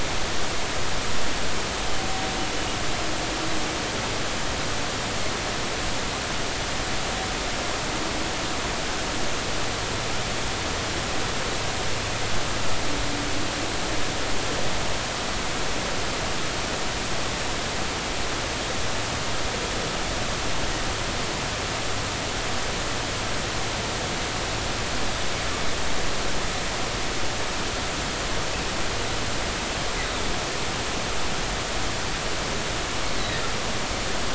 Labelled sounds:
33.2	33.4	humpback whale, 1.8 to 2.0 kHz

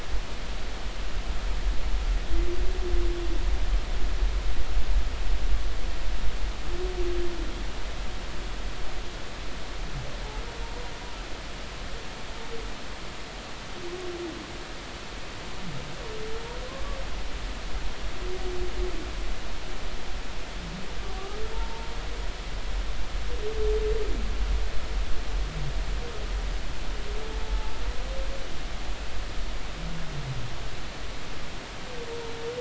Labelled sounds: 21.5	21.9	humpback whale, 0.86 to 0.99 kHz
27.4	27.7	humpback whale, 0.83 to 0.90 kHz

